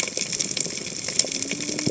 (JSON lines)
{"label": "biophony, cascading saw", "recorder": "HydroMoth"}